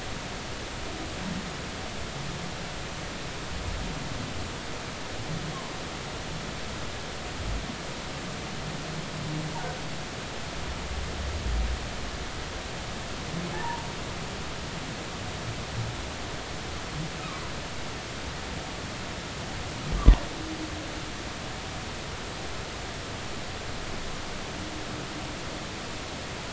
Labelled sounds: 13.5	13.9	humpback whale, 0.80 to 1.9 kHz

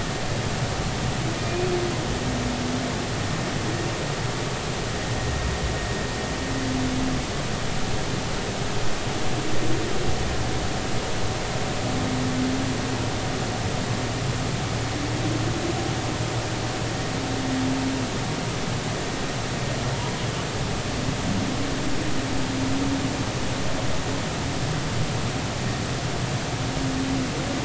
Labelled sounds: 1.4	1.7	humpback whale, 2.4 to 2.6 kHz

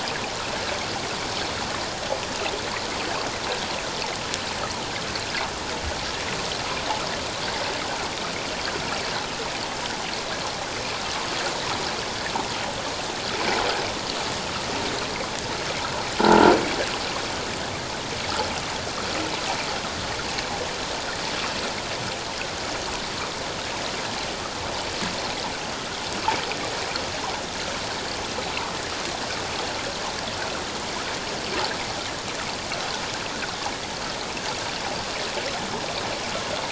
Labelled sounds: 16.2	16.5	croaking sound likely from a nearby submerged object, 1.3 to 1.6 kHz

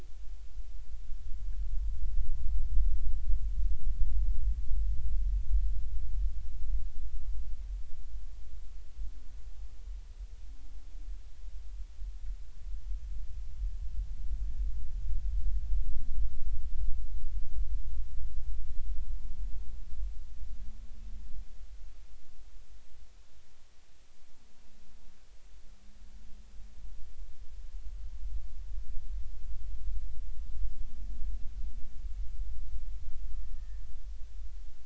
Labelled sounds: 33.5	33.8	humpback whale, 1.6 to 1.9 kHz

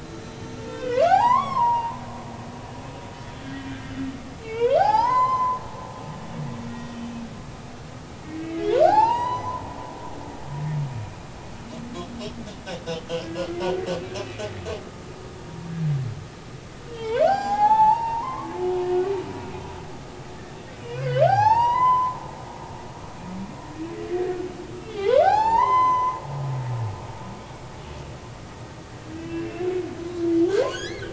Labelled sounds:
0.0	2.0	humpback whale, 0.80 to 5.0 kHz
3.7	5.6	humpback whale, 0.80 to 7.3 kHz
6.7	7.0	humpback whale, 1.9 to 3.6 kHz
8.2	9.6	humpback whale, 0.80 to 8.0 kHz
13.3	13.5	humpback whale, 4.2 to 4.4 kHz
16.9	19.0	humpback whale, 0.80 to 5.6 kHz
20.9	22.2	humpback whale, 0.80 to 5.5 kHz
24.8	26.2	humpback whale, 0.80 to 6.3 kHz
29.2	29.7	humpback whale, 2.5 to 2.8 kHz
30.6	31.1	humpback whale, 1.4 to 5.2 kHz

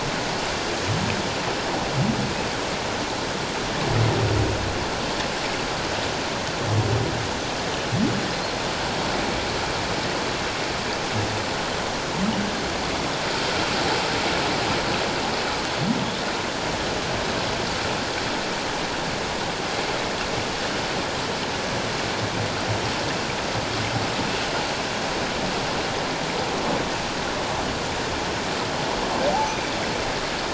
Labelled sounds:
29.3	29.6	humpback whale, 0.78 to 0.91 kHz

